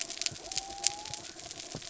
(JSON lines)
{"label": "biophony", "recorder": "SoundTrap 300"}
{"label": "anthrophony, mechanical", "recorder": "SoundTrap 300"}